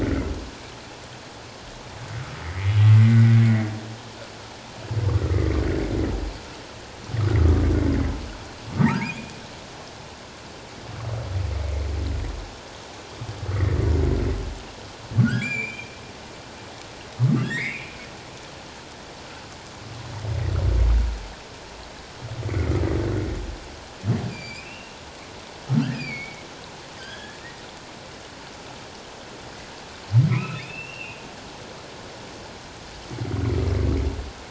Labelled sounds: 2.4	3.4	humpback whale, 1.7 to 2.4 kHz
5.2	5.5	humpback whale, 1.2 to 1.5 kHz
8.8	9.4	humpback whale, 1.2 to 2.5 kHz
15.2	15.9	humpback whale, 1.3 to 7.3 kHz
17.4	18.0	humpback whale, 1.6 to 2.8 kHz
22.5	22.7	humpback whale, 1.9 to 2.3 kHz
24.3	25.0	humpback whale, 2.2 to 7.6 kHz
25.8	26.5	humpback whale, 1.3 to 5.1 kHz
27.0	27.4	humpback whale, 1.5 to 3.4 kHz
30.3	31.2	humpback whale, 0.97 to 2.8 kHz

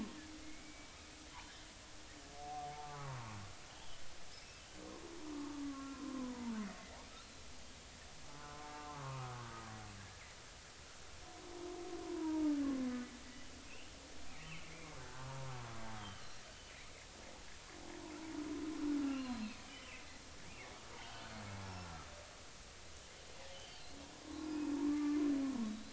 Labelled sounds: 0.4	1.0	killer whale, 2.0 to 2.3 kHz
1.4	1.7	killer whale, offshore, call OFF30, 3.0 to 3.3 kHz
2.7	3.4	humpback whale, 0.80 to 1.3 kHz
4.4	4.7	killer whale, offshore, call OFF30, 2.6 to 2.8 kHz
5.7	6.5	humpback whale, 0.86 to 1.4 kHz
8.4	9.4	humpback whale, 0.99 to 1.3 kHz
12.0	12.5	humpback whale, 0.83 to 1.1 kHz
13.7	14.9	killer whale, offshore, 2.0 to 3.1 kHz
15.0	15.4	humpback whale, 1.1 to 1.7 kHz
16.0	16.3	killer whale, offshore, 3.0 to 3.4 kHz
19.0	19.2	humpback whale, 1.3 to 1.4 kHz
19.0	19.9	killer whale, offshore, 2.5 to 4.3 kHz
20.9	21.4	killer whale, offshore, 1.4 to 3.3 kHz
23.5	23.8	killer whale, offshore, 3.0 to 3.3 kHz
24.2	24.5	humpback whale, 1.0 to 1.1 kHz
24.4	24.7	killer whale, offshore, 2.4 to 2.6 kHz
24.9	25.2	humpback whale, 1.1 to 1.2 kHz

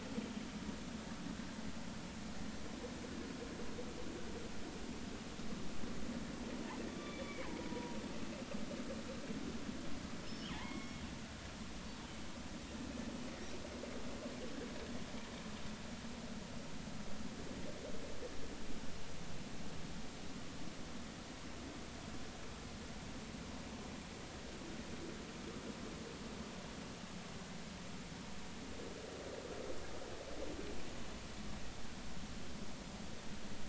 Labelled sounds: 6.9	7.3	killer whale, northern resident, G clan, GG subclan, call N44, 1.1 to 3.6 kHz
7.6	8.0	killer whale, northern resident, G clan, GG subclan, call N44, 0.93 to 1.0 kHz
10.2	11.0	killer whale, northern resident, G clan, call N23i, 0.80 to 5.4 kHz

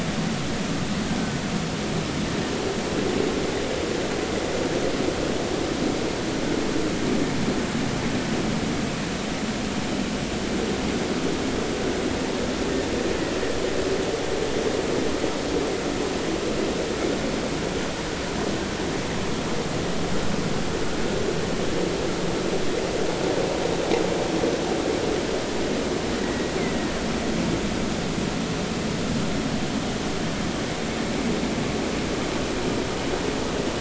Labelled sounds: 26.2	26.9	killer whale, Bigg's (transient), 1.9 to 2.2 kHz

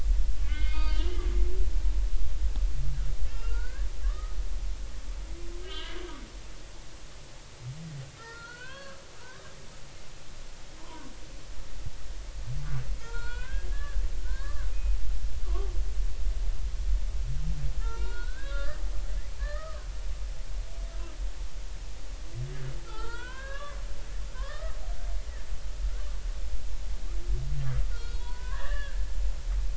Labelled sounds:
0.4	1.2	humpback whale, 1.4 to 4.7 kHz
3.3	4.4	humpback whale, 1.1 to 2.8 kHz
5.6	6.1	humpback whale, 1.5 to 3.3 kHz
8.2	9.5	humpback whale, 0.90 to 4.5 kHz
10.8	11.1	humpback whale, 0.90 to 1.2 kHz
13.0	15.7	humpback whale, 0.86 to 4.4 kHz
17.8	18.8	humpback whale, 0.86 to 4.9 kHz
19.4	19.9	humpback whale, 0.99 to 2.0 kHz
22.9	23.8	humpback whale, 0.80 to 4.9 kHz
24.3	24.8	humpback whale, 0.96 to 3.7 kHz
27.9	29.0	humpback whale, 0.86 to 3.9 kHz

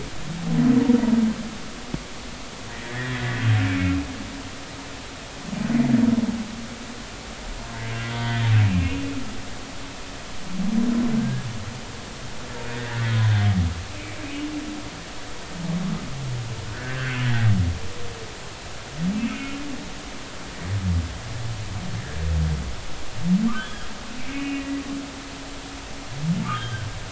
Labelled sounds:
2.7	4.0	humpback whale, 1.5 to 2.4 kHz
8.1	9.1	humpback whale, 0.90 to 3.5 kHz
11.2	11.5	humpback whale, 1.5 to 1.8 kHz
12.7	13.2	humpback whale, 1.4 to 2.0 kHz
13.9	14.2	humpback whale, 2.2 to 2.6 kHz
16.7	17.2	humpback whale, 1.4 to 1.9 kHz
19.3	19.6	humpback whale, 2.4 to 2.5 kHz
23.6	24.8	humpback whale, 1.9 to 3.4 kHz
26.4	26.9	humpback whale, 1.1 to 3.4 kHz

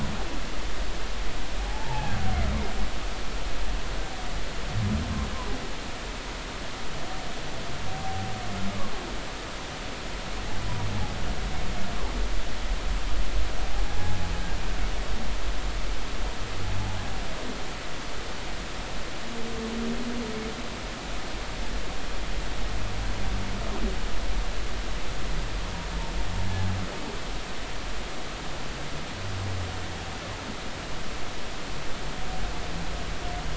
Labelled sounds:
1.6	2.1	humpback whale, 0.80 to 0.96 kHz
7.9	8.3	humpback whale, 0.80 to 0.83 kHz
13.8	14.2	humpback whale, 0.80 to 0.90 kHz

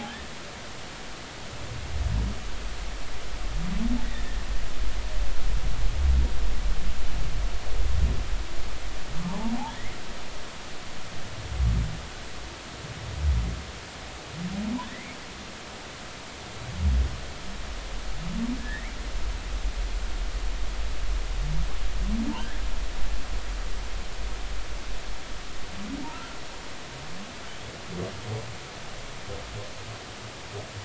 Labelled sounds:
4.0	4.4	humpback whale, 1.7 to 2.0 kHz
14.9	15.2	humpback whale, 1.8 to 2.4 kHz
18.6	18.9	humpback whale, 1.6 to 1.9 kHz
26.1	26.4	humpback whale, 1.2 to 1.4 kHz

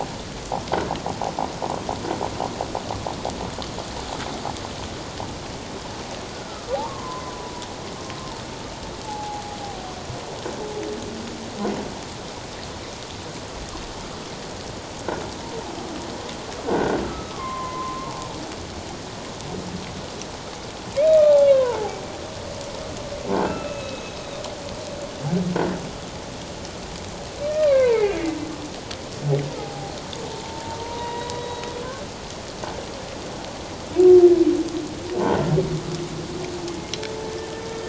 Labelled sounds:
6.3	7.5	humpback whale, 0.78 to 1.5 kHz
9.0	9.5	humpback whale, 0.78 to 0.91 kHz
16.6	17.0	croaking sound likely from a nearby submerged object, 1.4 to 1.7 kHz
17.0	18.1	humpback whale, 0.97 to 2.3 kHz
21.4	22.0	humpback whale, 0.78 to 3.4 kHz
23.3	24.4	humpback whale, 1.2 to 3.9 kHz
27.5	28.1	humpback whale, 0.84 to 2.7 kHz
29.5	31.6	humpback whale, 0.78 to 3.9 kHz
37.2	37.5	humpback whale, 1.7 to 1.8 kHz

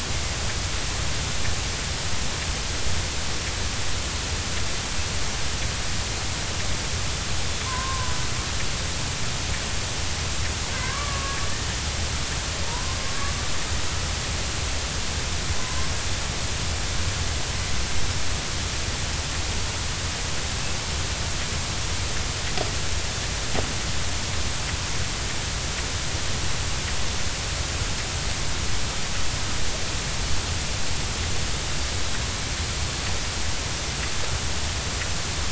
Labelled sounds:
7.6	8.2	killer whale, Bigg's (transient), 0.96 to 1.1 kHz
10.8	11.4	killer whale, Bigg's (transient), 0.93 to 1.3 kHz
12.7	13.0	killer whale, Bigg's (transient), 0.90 to 1.1 kHz

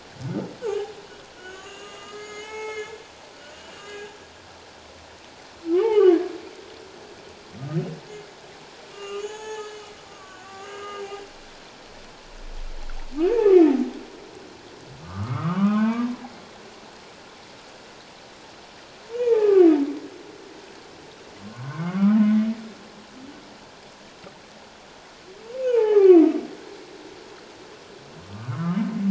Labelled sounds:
1.3	2.9	humpback whale, 0.81 to 8.0 kHz
3.7	4.1	humpback whale, 1.6 to 2.9 kHz
5.7	6.2	humpback whale, 1.0 to 3.2 kHz
8.9	11.0	humpback whale, 0.81 to 7.9 kHz
15.0	16.1	humpback whale, 0.78 to 3.2 kHz
19.2	19.7	humpback whale, 0.81 to 2.5 kHz
21.5	22.2	humpback whale, 1.0 to 1.6 kHz
25.6	26.3	humpback whale, 0.78 to 2.7 kHz
28.3	28.8	humpback whale, 0.97 to 1.5 kHz

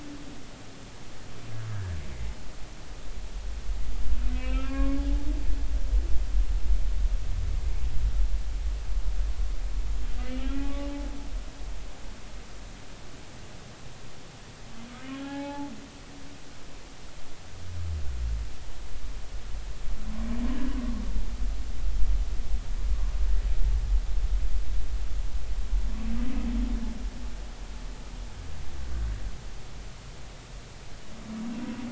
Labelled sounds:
1.7	2.0	humpback whale, 1.4 to 1.8 kHz
4.3	5.9	humpback whale, 1.0 to 3.0 kHz
10.4	10.9	humpback whale, 1.1 to 2.6 kHz
15.0	15.7	humpback whale, 0.80 to 3.4 kHz

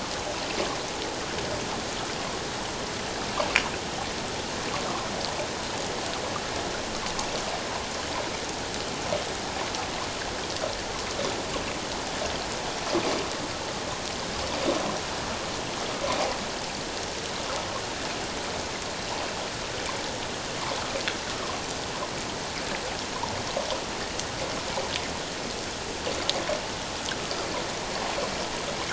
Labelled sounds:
21.3	21.6	water noise, 0.97 to 1.3 kHz

